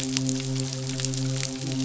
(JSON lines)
{"label": "biophony, midshipman", "recorder": "SoundTrap 500"}